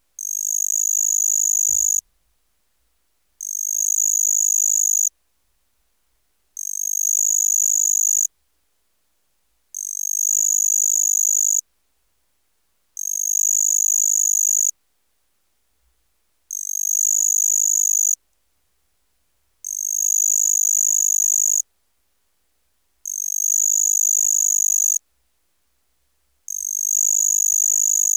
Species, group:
Pteronemobius heydenii, Orthoptera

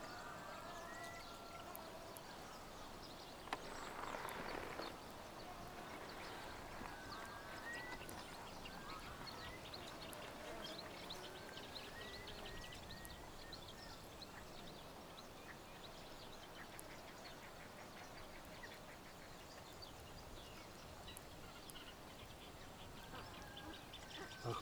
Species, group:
Gryllotalpa africana, Orthoptera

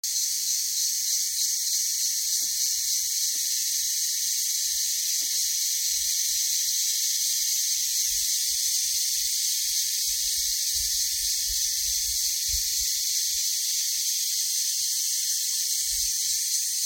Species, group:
Psaltoda claripennis, Cicadidae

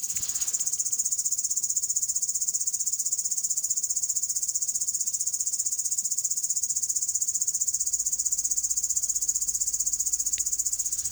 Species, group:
Tettigonia viridissima, Orthoptera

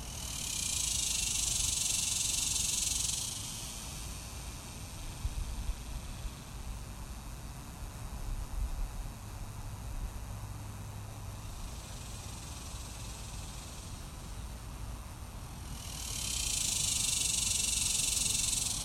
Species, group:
Neotibicen superbus, Cicadidae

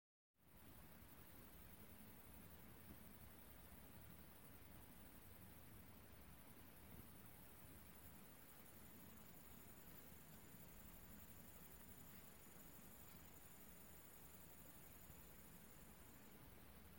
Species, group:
Tettigonia viridissima, Orthoptera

